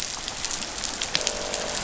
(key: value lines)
label: biophony, croak
recorder: SoundTrap 500